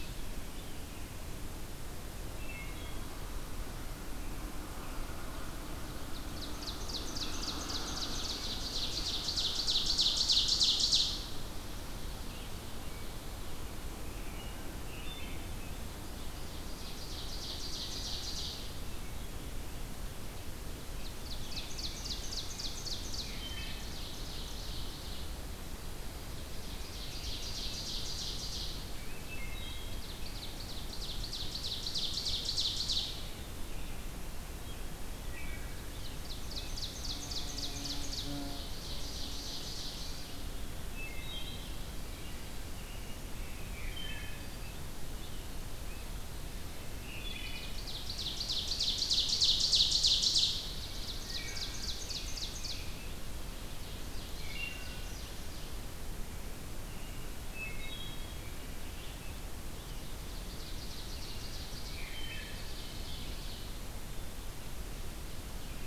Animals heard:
Scarlet Tanager (Piranga olivacea)
Ovenbird (Seiurus aurocapilla)
Wood Thrush (Hylocichla mustelina)
American Robin (Turdus migratorius)

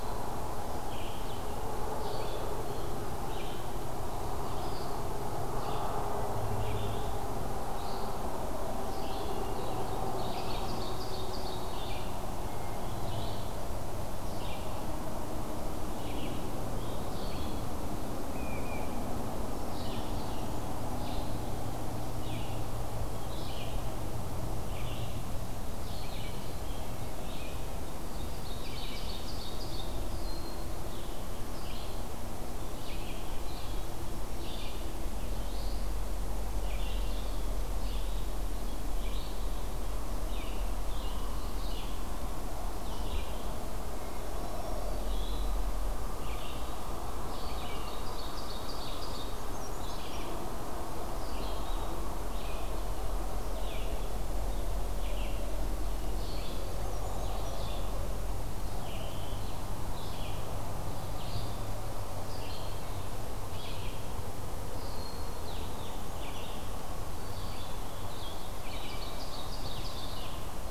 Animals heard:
Ovenbird (Seiurus aurocapilla)
Black-throated Green Warbler (Setophaga virens)
Brown Creeper (Certhia americana)
Hermit Thrush (Catharus guttatus)
Broad-winged Hawk (Buteo platypterus)
Blue-headed Vireo (Vireo solitarius)
Red-eyed Vireo (Vireo olivaceus)
Great Crested Flycatcher (Myiarchus crinitus)

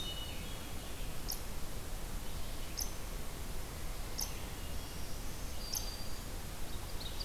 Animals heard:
unknown mammal
Black-throated Green Warbler (Setophaga virens)
Hermit Thrush (Catharus guttatus)
Red-eyed Vireo (Vireo olivaceus)

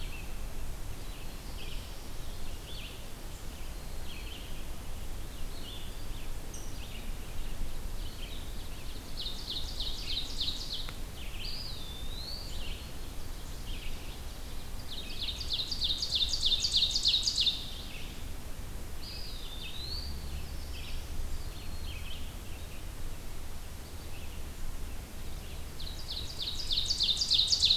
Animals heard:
Black-throated Green Warbler (Setophaga virens)
Ovenbird (Seiurus aurocapilla)
Black-throated Blue Warbler (Setophaga caerulescens)
Eastern Wood-Pewee (Contopus virens)
Red-eyed Vireo (Vireo olivaceus)

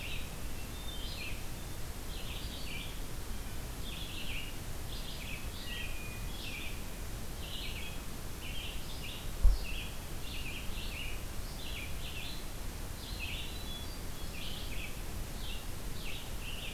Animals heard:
Hermit Thrush (Catharus guttatus)
Red-eyed Vireo (Vireo olivaceus)
Blue Jay (Cyanocitta cristata)

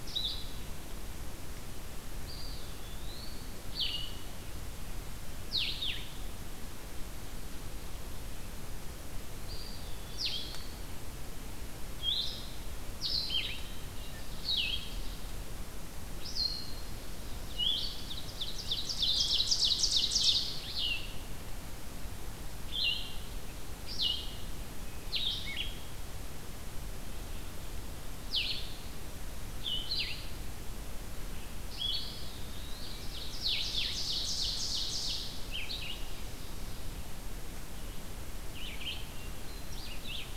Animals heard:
Hermit Thrush (Catharus guttatus)
Blue-headed Vireo (Vireo solitarius)
Red-eyed Vireo (Vireo olivaceus)
Eastern Wood-Pewee (Contopus virens)
Ovenbird (Seiurus aurocapilla)

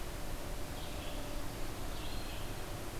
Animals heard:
Red-eyed Vireo (Vireo olivaceus)
Eastern Wood-Pewee (Contopus virens)

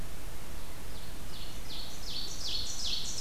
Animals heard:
Ovenbird (Seiurus aurocapilla)

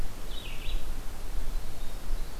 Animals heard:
Winter Wren (Troglodytes hiemalis)
Red-eyed Vireo (Vireo olivaceus)

